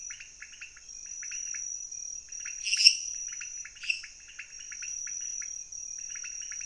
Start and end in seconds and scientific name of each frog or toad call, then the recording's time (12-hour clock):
0.0	6.6	Leptodactylus podicipinus
2.3	4.2	Dendropsophus minutus
11:00pm